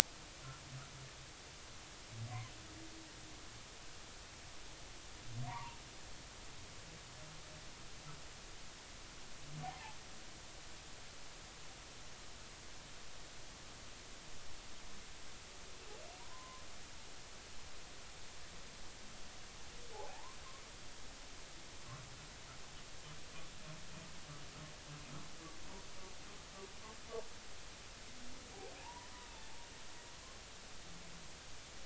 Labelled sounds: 5.5	5.8	humpback whale, 0.80 to 1.2 kHz
9.6	10.0	humpback whale, 0.80 to 1.0 kHz
16.3	16.6	humpback whale, 0.96 to 1.1 kHz
19.9	20.4	humpback whale, 0.80 to 1.2 kHz
28.8	29.1	humpback whale, 0.80 to 1.0 kHz

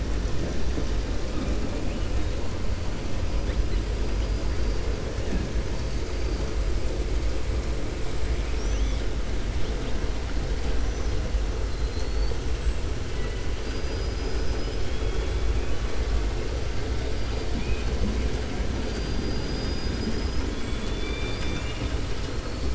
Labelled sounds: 13.5	15.4	killer whale, 2.6 to 5.9 kHz
17.5	17.9	killer whale, 2.3 to 3.9 kHz
20.5	21.9	killer whale, 1.4 to 7.1 kHz

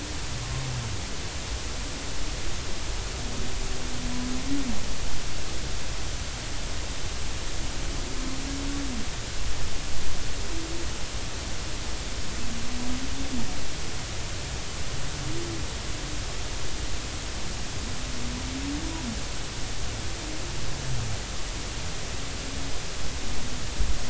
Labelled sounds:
0.4	0.6	humpback whale, 0.99 to 1.1 kHz

